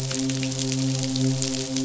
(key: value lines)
label: biophony, midshipman
recorder: SoundTrap 500